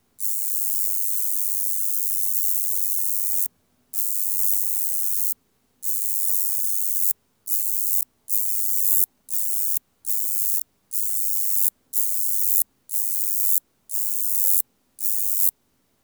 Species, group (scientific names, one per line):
Roeseliana roeselii
Orthoptera